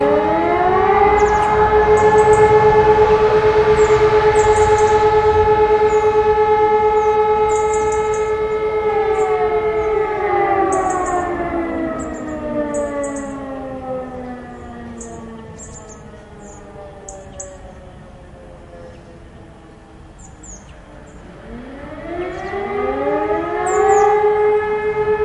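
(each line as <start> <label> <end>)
0.0 Sirens howling, varying in volume. 25.2
1.1 Birds chirping in the background. 2.5
3.6 Birds chirping in the background. 5.2
7.0 Birds chirping in the background. 8.4
10.6 Birds chirping in the background. 13.3
14.9 Birds chirping in the background. 17.5
20.1 Birds chirping in the background. 21.3
22.1 Birds chirping in the background. 22.6
23.5 Birds chirping in the background. 24.2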